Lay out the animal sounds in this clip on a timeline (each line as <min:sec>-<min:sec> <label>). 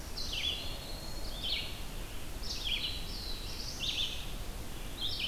0:00.0-0:01.5 Black-throated Green Warbler (Setophaga virens)
0:00.0-0:05.3 Red-eyed Vireo (Vireo olivaceus)
0:02.6-0:04.5 Black-throated Blue Warbler (Setophaga caerulescens)